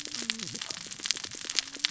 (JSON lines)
{"label": "biophony, cascading saw", "recorder": "SoundTrap 600 or HydroMoth"}